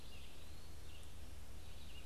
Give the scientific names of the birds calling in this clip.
Vireo olivaceus